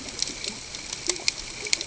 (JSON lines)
{"label": "ambient", "recorder": "HydroMoth"}